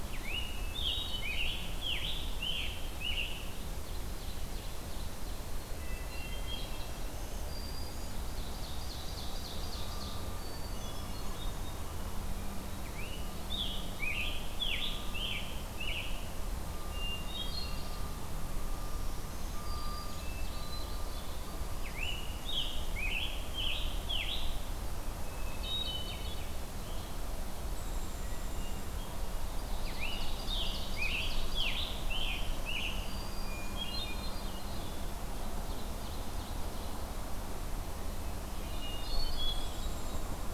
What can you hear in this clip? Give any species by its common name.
Scarlet Tanager, Ovenbird, Hermit Thrush, Black-throated Green Warbler, Black-capped Chickadee